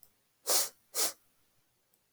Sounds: Sniff